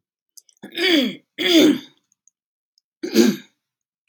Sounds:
Throat clearing